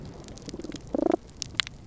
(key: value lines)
label: biophony
recorder: SoundTrap 300